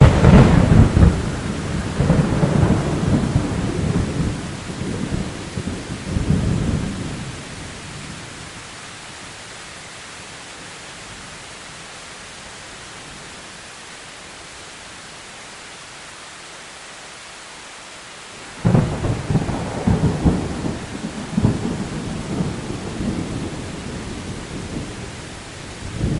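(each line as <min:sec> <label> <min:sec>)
0:00.0 Thunderclaps loudly with slight reverberation. 0:13.5
0:00.0 Muffled sound of raindrops falling. 0:26.2
0:18.6 Thunder claps with slight reverb. 0:26.2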